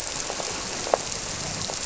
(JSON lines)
{"label": "biophony", "recorder": "SoundTrap 300"}